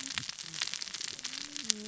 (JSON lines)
{"label": "biophony, cascading saw", "recorder": "SoundTrap 600 or HydroMoth"}